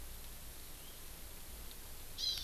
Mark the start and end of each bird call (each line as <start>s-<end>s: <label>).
2.1s-2.4s: Hawaiian Hawk (Buteo solitarius)